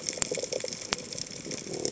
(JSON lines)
{"label": "biophony", "recorder": "HydroMoth"}